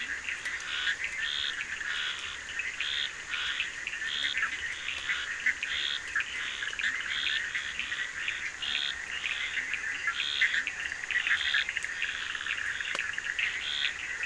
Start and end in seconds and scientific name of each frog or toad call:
0.0	14.0	Scinax perereca
0.0	14.2	Boana bischoffi
0.0	14.2	Sphaenorhynchus surdus
3.9	10.8	Leptodactylus latrans